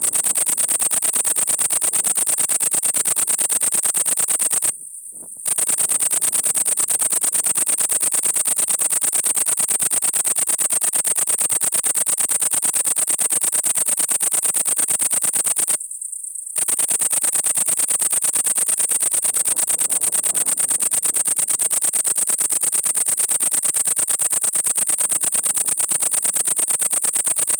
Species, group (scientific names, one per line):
Tettigonia viridissima
Orthoptera